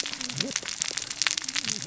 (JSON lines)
{"label": "biophony, cascading saw", "recorder": "SoundTrap 600 or HydroMoth"}